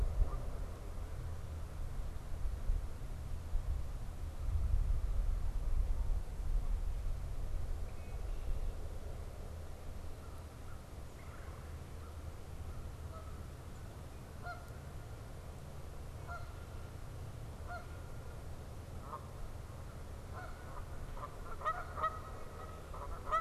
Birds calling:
Canada Goose (Branta canadensis)
Red-winged Blackbird (Agelaius phoeniceus)
American Crow (Corvus brachyrhynchos)

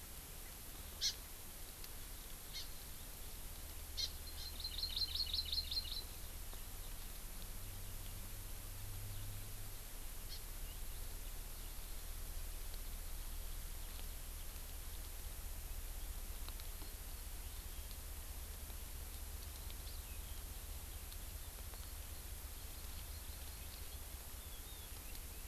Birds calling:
Hawaii Amakihi (Chlorodrepanis virens)

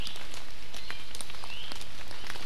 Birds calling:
Iiwi (Drepanis coccinea)

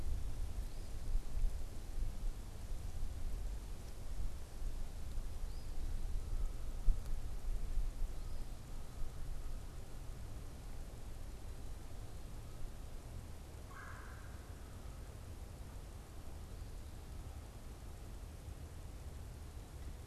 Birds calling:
Eastern Phoebe (Sayornis phoebe)
Red-bellied Woodpecker (Melanerpes carolinus)

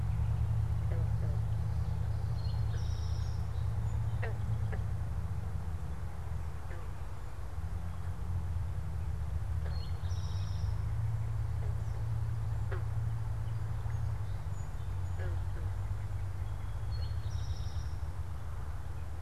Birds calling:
Song Sparrow (Melospiza melodia)
Eastern Towhee (Pipilo erythrophthalmus)

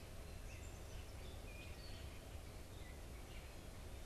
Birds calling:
Gray Catbird (Dumetella carolinensis)

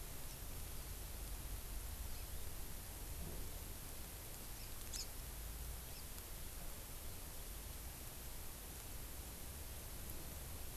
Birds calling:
Hawaii Amakihi (Chlorodrepanis virens)

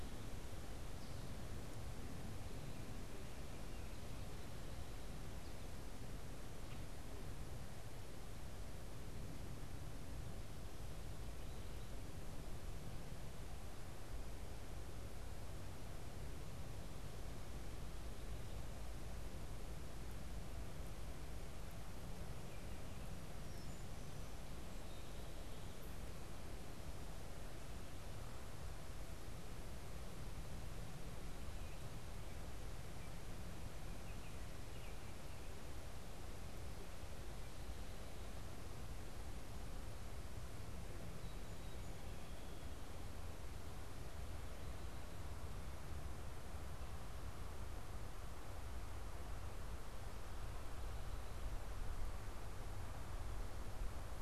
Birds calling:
Baltimore Oriole (Icterus galbula)

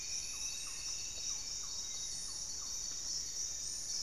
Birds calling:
Hauxwell's Thrush (Turdus hauxwelli)
Striped Woodcreeper (Xiphorhynchus obsoletus)
Thrush-like Wren (Campylorhynchus turdinus)
Buff-breasted Wren (Cantorchilus leucotis)
Paradise Tanager (Tangara chilensis)
Black-faced Antthrush (Formicarius analis)

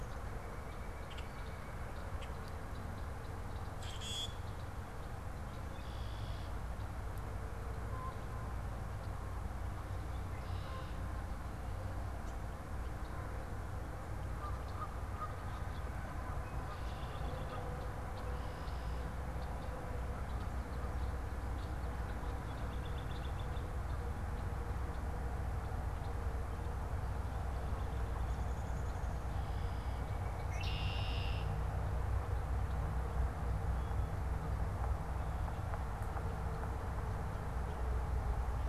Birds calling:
White-breasted Nuthatch (Sitta carolinensis)
Canada Goose (Branta canadensis)
Common Yellowthroat (Geothlypis trichas)
Common Grackle (Quiscalus quiscula)
American Robin (Turdus migratorius)
Downy Woodpecker (Dryobates pubescens)
Red-winged Blackbird (Agelaius phoeniceus)

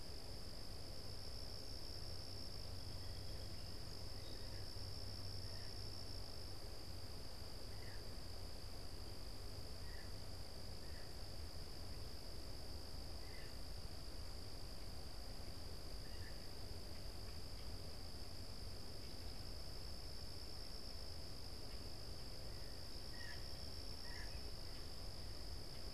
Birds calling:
Blue Jay (Cyanocitta cristata)
Song Sparrow (Melospiza melodia)

